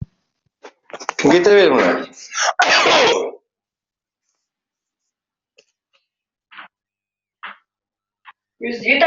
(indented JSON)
{
  "expert_labels": [
    {
      "quality": "poor",
      "cough_type": "unknown",
      "dyspnea": false,
      "wheezing": false,
      "stridor": false,
      "choking": false,
      "congestion": false,
      "nothing": true,
      "diagnosis": "upper respiratory tract infection",
      "severity": "unknown"
    }
  ],
  "age": 56,
  "gender": "male",
  "respiratory_condition": false,
  "fever_muscle_pain": false,
  "status": "healthy"
}